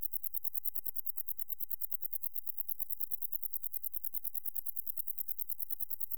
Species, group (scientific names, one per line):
Decticus verrucivorus
Orthoptera